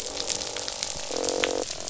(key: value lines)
label: biophony, croak
recorder: SoundTrap 500